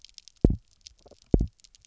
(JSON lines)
{"label": "biophony, double pulse", "recorder": "SoundTrap 300"}